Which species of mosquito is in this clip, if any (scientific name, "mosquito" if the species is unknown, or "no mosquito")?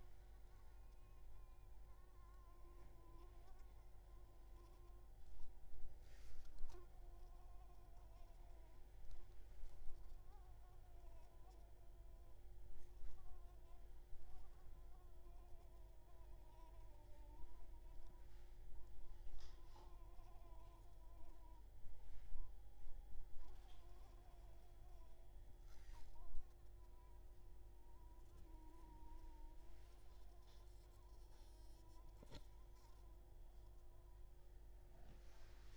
Anopheles coustani